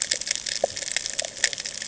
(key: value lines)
label: ambient
recorder: HydroMoth